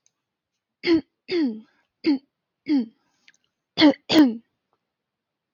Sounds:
Throat clearing